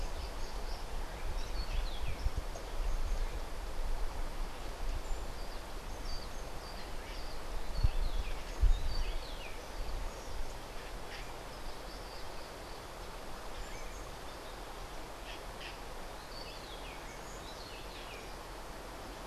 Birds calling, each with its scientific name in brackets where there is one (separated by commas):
Rufous-breasted Wren (Pheugopedius rutilus)